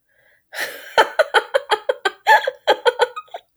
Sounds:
Laughter